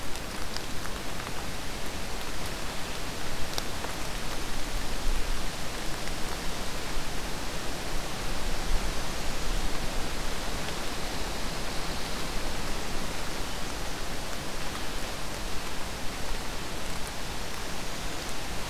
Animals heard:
forest ambience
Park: Katahdin Woods and Waters National Monument